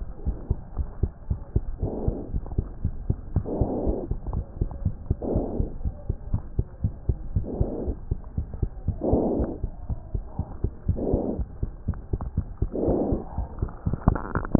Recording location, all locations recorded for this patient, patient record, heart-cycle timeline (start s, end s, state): pulmonary valve (PV)
aortic valve (AV)+pulmonary valve (PV)+tricuspid valve (TV)+mitral valve (MV)
#Age: Child
#Sex: Female
#Height: 96.0 cm
#Weight: 15.8 kg
#Pregnancy status: False
#Murmur: Absent
#Murmur locations: nan
#Most audible location: nan
#Systolic murmur timing: nan
#Systolic murmur shape: nan
#Systolic murmur grading: nan
#Systolic murmur pitch: nan
#Systolic murmur quality: nan
#Diastolic murmur timing: nan
#Diastolic murmur shape: nan
#Diastolic murmur grading: nan
#Diastolic murmur pitch: nan
#Diastolic murmur quality: nan
#Outcome: Normal
#Campaign: 2015 screening campaign
0.00	0.12	unannotated
0.12	0.25	diastole
0.25	0.35	S1
0.35	0.48	systole
0.48	0.58	S2
0.58	0.75	diastole
0.75	0.88	S1
0.88	1.00	systole
1.00	1.10	S2
1.10	1.28	diastole
1.28	1.40	S1
1.40	1.54	systole
1.54	1.64	S2
1.64	1.81	diastole
1.81	1.93	S1
1.93	2.05	systole
2.05	2.16	S2
2.16	2.32	diastole
2.32	2.42	S1
2.42	2.56	systole
2.56	2.66	S2
2.66	2.83	diastole
2.83	2.93	S1
2.93	3.08	systole
3.08	3.18	S2
3.18	3.35	diastole
3.35	3.44	S1
3.44	3.60	systole
3.60	3.70	S2
3.70	3.86	diastole
3.86	3.98	S1
3.98	4.10	systole
4.10	4.20	S2
4.20	4.32	diastole
4.32	4.44	S1
4.44	4.60	systole
4.60	4.70	S2
4.70	4.83	diastole
4.83	4.90	S1
4.90	5.08	systole
5.08	5.15	S2
5.15	5.32	diastole
5.32	5.44	S1
5.44	5.56	systole
5.56	5.68	S2
5.68	5.83	diastole
5.83	5.94	S1
5.94	6.07	systole
6.07	6.16	S2
6.16	6.31	diastole
6.31	6.42	S1
6.42	6.57	systole
6.57	6.66	S2
6.66	6.82	diastole
6.82	6.94	S1
6.94	7.06	systole
7.06	7.18	S2
7.18	7.33	diastole
7.33	7.46	S1
7.46	7.58	systole
7.58	7.70	S2
7.70	7.86	diastole
7.86	7.96	S1
7.96	8.08	systole
8.08	8.18	S2
8.18	8.35	diastole
8.35	8.46	S1
8.46	8.60	systole
8.60	8.70	S2
8.70	8.85	diastole
8.85	8.96	S1
8.96	9.09	systole
9.09	9.16	S2
9.16	14.59	unannotated